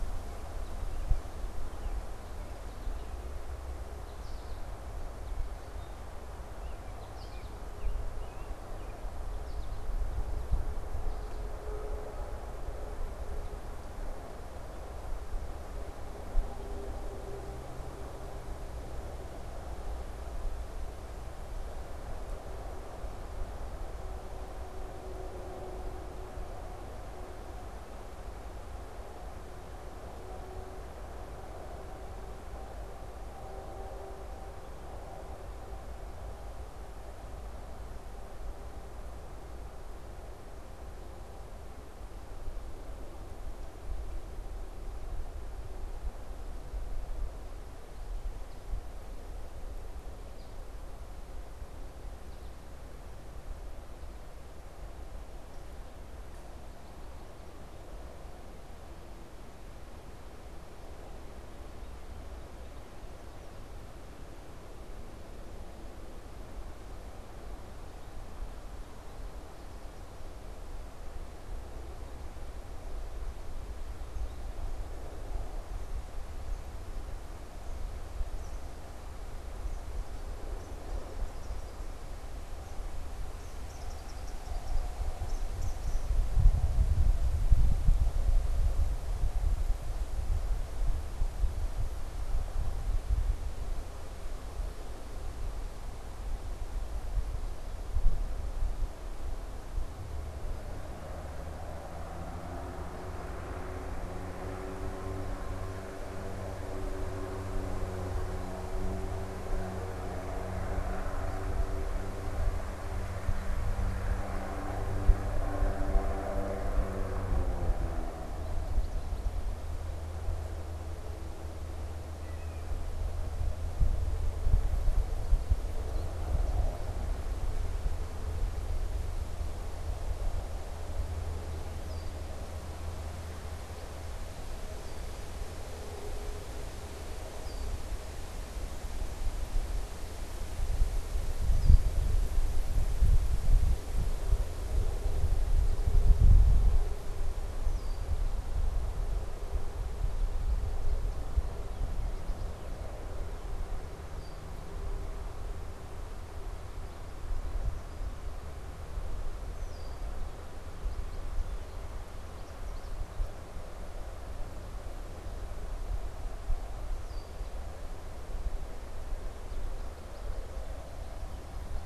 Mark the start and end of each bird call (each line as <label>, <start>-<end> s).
American Robin (Turdus migratorius), 0.0-9.1 s
American Goldfinch (Spinus tristis), 2.3-9.8 s
American Goldfinch (Spinus tristis), 10.5-11.6 s
Eastern Kingbird (Tyrannus tyrannus), 73.8-86.8 s
unidentified bird, 118.1-119.7 s
unidentified bird, 122.1-122.8 s
unidentified bird, 125.0-127.1 s
Red-winged Blackbird (Agelaius phoeniceus), 131.6-142.0 s
Red-winged Blackbird (Agelaius phoeniceus), 147.5-148.3 s
unidentified bird, 149.8-152.8 s
Red-winged Blackbird (Agelaius phoeniceus), 154.0-154.5 s
Red-winged Blackbird (Agelaius phoeniceus), 159.4-160.1 s
American Goldfinch (Spinus tristis), 160.7-163.1 s
Red-winged Blackbird (Agelaius phoeniceus), 166.7-167.6 s
American Goldfinch (Spinus tristis), 169.1-171.6 s